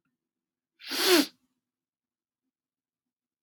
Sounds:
Sniff